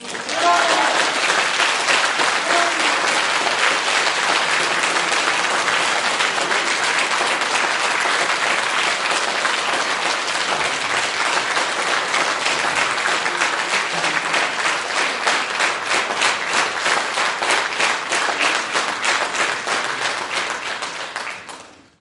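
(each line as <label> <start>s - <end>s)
People are applauding loudly. 0.0s - 22.0s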